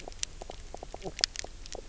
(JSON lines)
{"label": "biophony, knock croak", "recorder": "SoundTrap 300"}